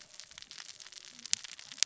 {"label": "biophony, cascading saw", "recorder": "SoundTrap 600 or HydroMoth"}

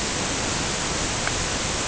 {"label": "ambient", "recorder": "HydroMoth"}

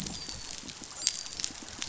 {"label": "biophony, dolphin", "recorder": "SoundTrap 500"}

